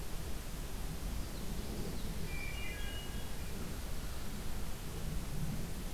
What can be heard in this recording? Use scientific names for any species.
Geothlypis trichas, Hylocichla mustelina